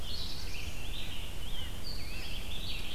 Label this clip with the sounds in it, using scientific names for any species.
Setophaga caerulescens, Sitta canadensis, Vireo olivaceus, Pheucticus ludovicianus